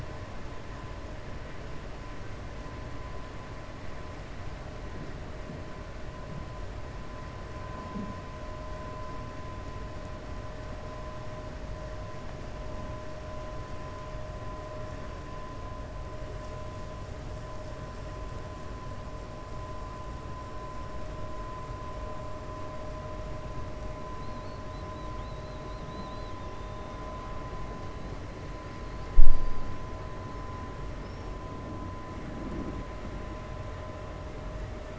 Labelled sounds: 24.1	24.6	killer whale, 3.8 to 4.4 kHz

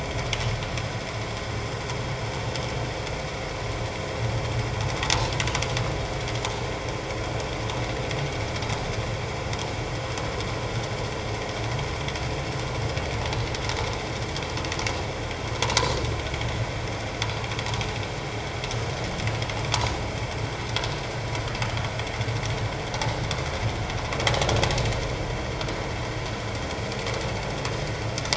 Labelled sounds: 15.6	15.9	vessel noise, 0.88 to 1.1 kHz

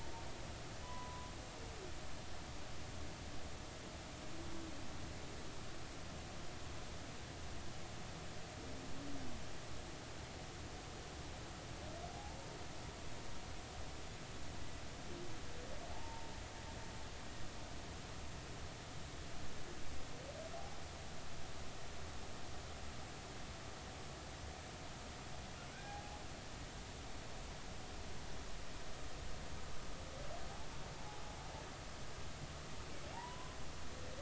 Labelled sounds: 0.8	1.3	humpback whale, 0.93 to 1.1 kHz
12.1	12.4	humpback whale, 0.80 to 0.93 kHz
15.9	16.3	humpback whale, 0.83 to 0.96 kHz
20.5	20.8	humpback whale, 0.80 to 0.86 kHz
25.7	26.1	humpback whale, 0.80 to 2.5 kHz
30.9	31.2	humpback whale, 0.80 to 0.90 kHz
33.1	33.6	humpback whale, 0.80 to 1.1 kHz

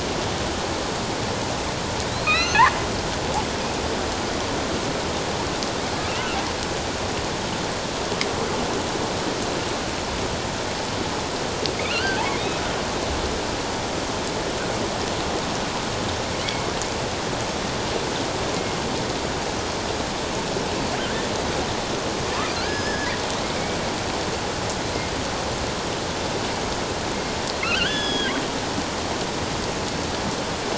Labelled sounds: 2.1	2.7	killer whale, offshore, 1.2 to 6.5 kHz
11.8	12.2	killer whale, offshore, 1.3 to 3.2 kHz
22.6	23.1	killer whale, offshore, 1.3 to 5.3 kHz
27.6	28.3	killer whale, offshore, 1.2 to 5.2 kHz

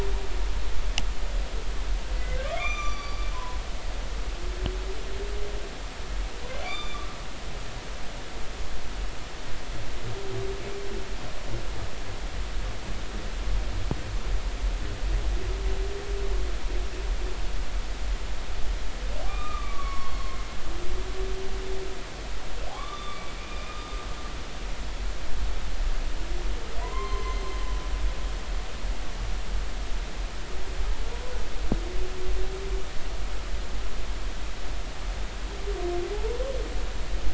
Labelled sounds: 2.4	3.6	humpback whale, 0.93 to 6.1 kHz
3.9	4.2	humpback whale, 4.5 to 4.7 kHz
6.6	7.1	humpback whale, 2.1 to 4.8 kHz
19.3	20.3	humpback whale, 0.99 to 4.4 kHz
22.7	23.8	humpback whale, 0.99 to 3.6 kHz
26.8	27.4	humpback whale, 0.93 to 3.2 kHz

